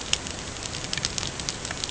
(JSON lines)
{"label": "ambient", "recorder": "HydroMoth"}